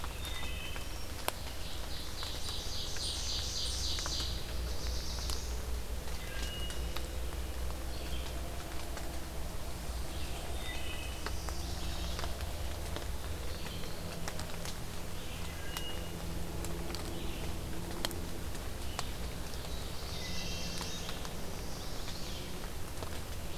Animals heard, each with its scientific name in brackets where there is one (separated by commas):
Black-throated Blue Warbler (Setophaga caerulescens), Ovenbird (Seiurus aurocapilla), Wood Thrush (Hylocichla mustelina), Red-eyed Vireo (Vireo olivaceus), Chestnut-sided Warbler (Setophaga pensylvanica)